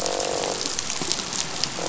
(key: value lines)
label: biophony, croak
recorder: SoundTrap 500